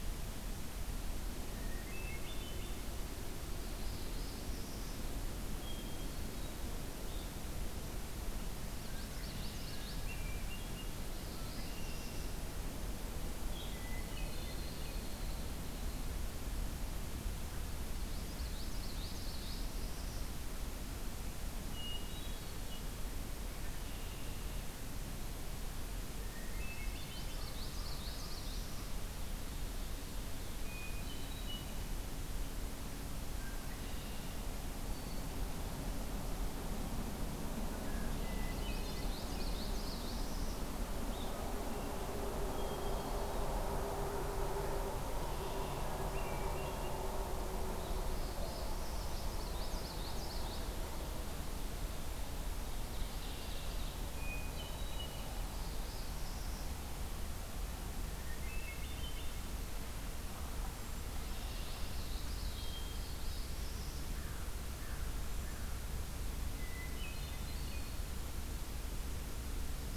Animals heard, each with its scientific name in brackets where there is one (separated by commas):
Northern Parula (Setophaga americana), Hermit Thrush (Catharus guttatus), American Crow (Corvus brachyrhynchos), Ovenbird (Seiurus aurocapilla), Common Yellowthroat (Geothlypis trichas), Red-winged Blackbird (Agelaius phoeniceus)